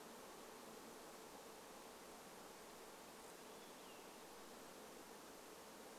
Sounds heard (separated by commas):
Olive-sided Flycatcher song, insect buzz